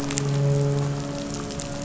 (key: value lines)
label: anthrophony, boat engine
recorder: SoundTrap 500